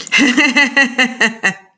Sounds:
Laughter